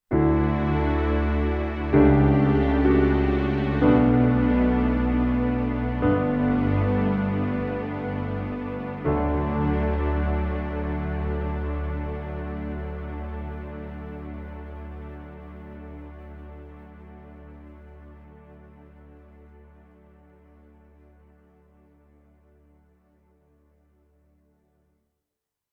Are dogs barking?
no